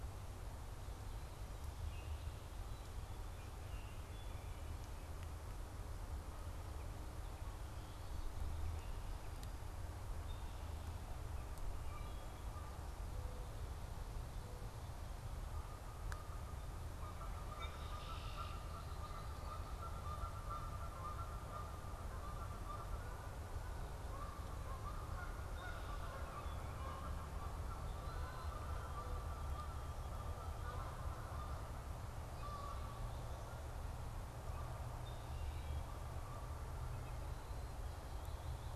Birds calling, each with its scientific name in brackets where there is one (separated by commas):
Wood Thrush (Hylocichla mustelina), Red-winged Blackbird (Agelaius phoeniceus), Mourning Dove (Zenaida macroura), Canada Goose (Branta canadensis)